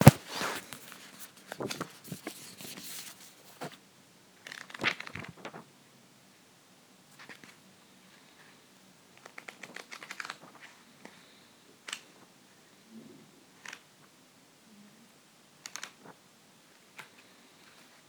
Is the man talking?
no